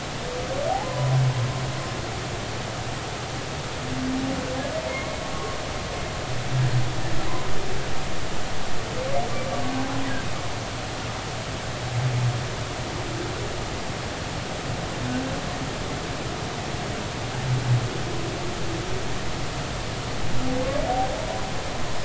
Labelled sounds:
1.8	2.1	humpback whale, 0.96 to 1.1 kHz
4.9	5.2	humpback whale, 2.0 to 2.2 kHz

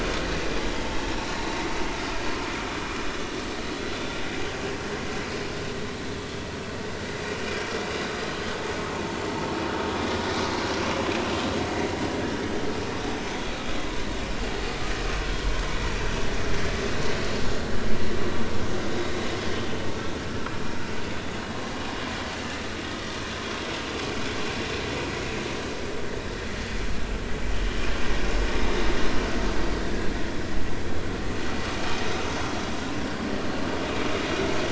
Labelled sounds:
1.0	1.4	vessel noise, 3.8 to 4.2 kHz
3.0	3.2	vessel noise, 5.1 to 5.3 kHz
12.1	12.4	vessel noise, 1.5 to 1.8 kHz
15.2	15.4	vessel noise, 1.4 to 1.6 kHz

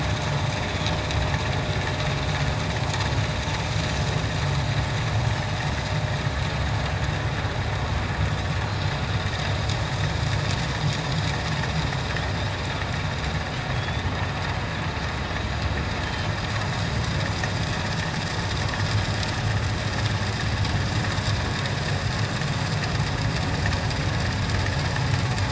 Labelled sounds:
13.7	14.1	Pacific white-sided dolphin, 3.3 to 3.7 kHz
16.0	16.3	Pacific white-sided dolphin, 3.0 to 3.2 kHz

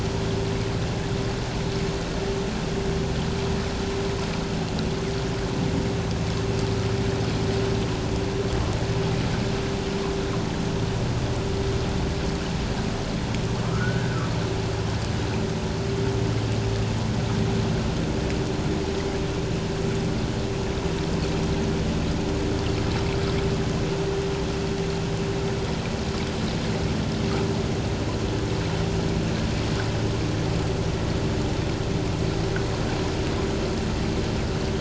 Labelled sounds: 13.7	14.2	humpback whale, 1.2 to 1.8 kHz

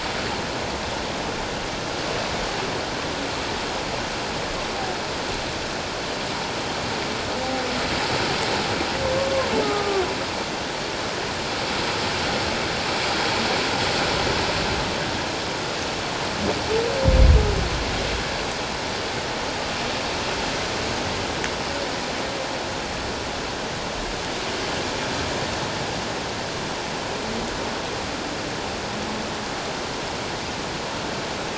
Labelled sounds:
9.6	10.0	humpback whale, 1.1 to 1.3 kHz

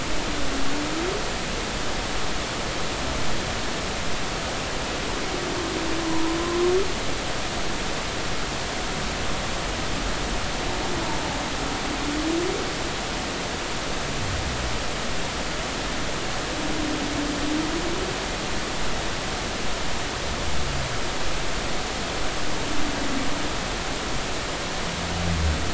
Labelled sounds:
6.0	6.4	humpback whale, 0.90 to 1.1 kHz

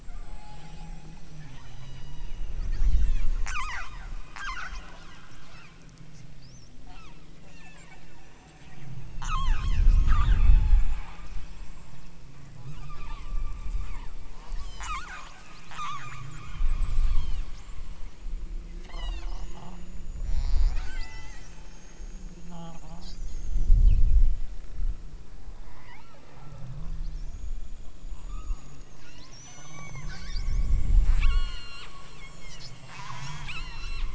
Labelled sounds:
0.0	4.9	killer whale, southern Alaska resident, 0.50 to 8.0 kHz
5.5	5.9	killer whale, southern Alaska resident, 0.89 to 2.9 kHz
6.8	8.0	killer whale, southern Alaska resident, 0.59 to 7.5 kHz
9.1	10.9	killer whale, southern Alaska resident, 0.64 to 8.0 kHz
12.7	14.3	killer whale, southern Alaska resident, 0.84 to 4.8 kHz
14.7	17.5	killer whale, southern Alaska resident, 0.43 to 8.0 kHz
18.8	19.4	killer whale, southern Alaska resident, 0.46 to 8.0 kHz
20.1	21.7	killer whale, southern Alaska resident, 0.46 to 8.0 kHz
25.5	26.9	killer whale, southern Alaska resident, 0.27 to 3.0 kHz
28.2	34.1	killer whale, southern Alaska resident, 0.50 to 8.0 kHz

